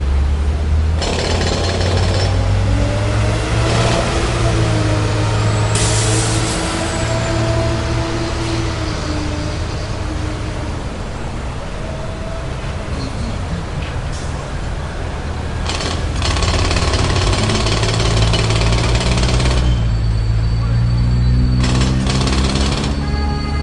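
Vehicles making noise outdoors on the street in the background. 0.0 - 23.6
A jackhammer is making noise outdoors on the street. 0.9 - 2.3
A jackhammer is making noise outdoors on the street. 3.6 - 4.0
Vehicle shifting gears in traffic on the street. 5.8 - 6.3
A jackhammer is making noise outdoors on the street. 15.6 - 19.6
A jackhammer is making noise outdoors on the street. 21.6 - 23.0
A car horn honks outdoors on the street in the background. 23.0 - 23.6

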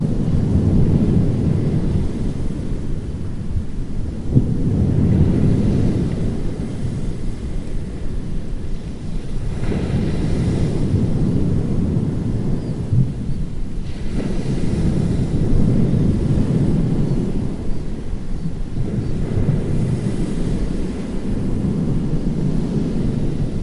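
Ocean waves crashing onto the shore in the distance. 0.0 - 23.6

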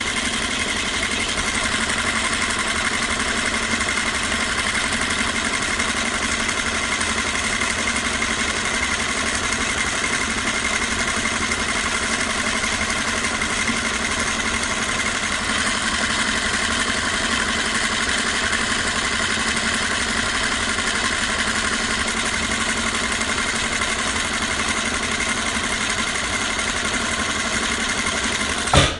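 A sewing machine operates at a steady and continuous pace, producing a whirring mechanical sound. 0.0 - 29.0

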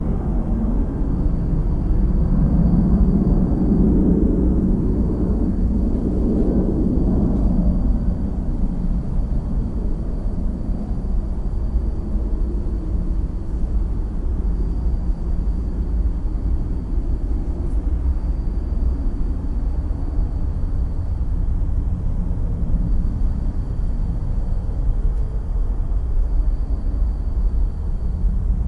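An airplane is flying overhead. 0.0 - 8.8
The wind blows steadily and rhythmically. 0.0 - 28.7

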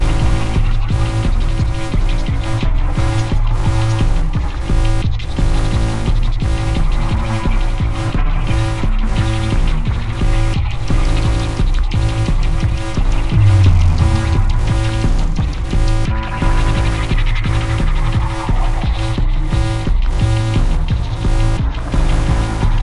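Rhythmic drum beats. 0.0 - 22.8
Techno music with synthetic and metallic sounds. 0.0 - 22.8

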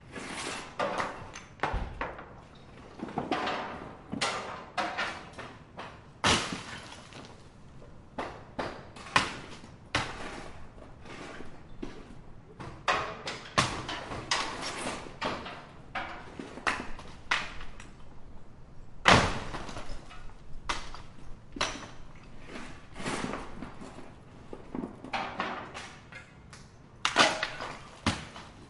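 Hammer hitting a wall repeatedly with varying intensity. 0.0 - 28.7

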